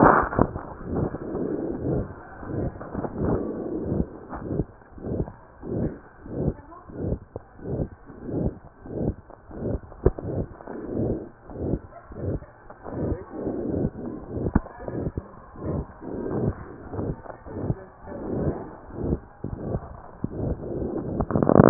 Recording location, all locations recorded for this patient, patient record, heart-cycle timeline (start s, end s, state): aortic valve (AV)
aortic valve (AV)+tricuspid valve (TV)+mitral valve (MV)
#Age: Child
#Sex: Male
#Height: 86.0 cm
#Weight: 10.2 kg
#Pregnancy status: False
#Murmur: Present
#Murmur locations: aortic valve (AV)+mitral valve (MV)+tricuspid valve (TV)
#Most audible location: aortic valve (AV)
#Systolic murmur timing: Holosystolic
#Systolic murmur shape: Crescendo
#Systolic murmur grading: I/VI
#Systolic murmur pitch: Medium
#Systolic murmur quality: Harsh
#Diastolic murmur timing: nan
#Diastolic murmur shape: nan
#Diastolic murmur grading: nan
#Diastolic murmur pitch: nan
#Diastolic murmur quality: nan
#Outcome: Abnormal
#Campaign: 2015 screening campaign
0.00	4.16	unannotated
4.16	4.33	diastole
4.33	4.41	S1
4.41	4.54	systole
4.54	4.66	S2
4.66	4.97	diastole
4.97	5.07	S1
5.07	5.18	systole
5.18	5.25	S2
5.25	5.61	diastole
5.61	5.71	S1
5.71	5.84	systole
5.84	5.92	S2
5.92	6.26	diastole
6.26	6.37	S1
6.37	6.45	systole
6.45	6.53	S2
6.53	6.87	diastole
6.87	6.98	S1
6.98	7.11	systole
7.11	7.20	S2
7.20	7.60	diastole
7.60	7.69	S1
7.69	7.79	systole
7.79	7.88	S2
7.88	8.23	diastole
8.23	8.31	S1
8.31	8.43	systole
8.43	8.52	S2
8.52	8.84	diastole
8.84	8.94	S1
8.94	9.05	systole
9.05	9.14	S2
9.14	9.49	diastole
9.49	9.58	S1
9.58	9.70	systole
9.70	9.79	S2
9.79	10.17	diastole
10.17	10.27	S1
10.27	10.38	systole
10.38	10.48	S2
10.48	10.89	diastole
10.89	11.02	S1
11.02	11.09	systole
11.09	11.18	S2
11.18	11.47	diastole
11.47	11.59	S1
11.59	11.71	systole
11.71	11.81	S2
11.81	12.08	diastole
12.08	12.20	S1
12.20	12.32	systole
12.32	12.41	S2
12.41	12.84	diastole
12.84	12.98	S1
12.98	13.10	systole
13.10	13.17	S2
13.17	13.32	diastole
13.32	21.70	unannotated